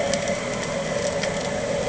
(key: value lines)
label: anthrophony, boat engine
recorder: HydroMoth